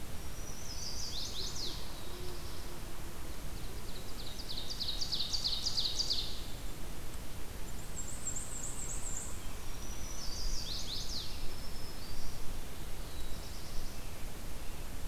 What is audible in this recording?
Black-throated Green Warbler, Chestnut-sided Warbler, Black-throated Blue Warbler, Ovenbird, Black-and-white Warbler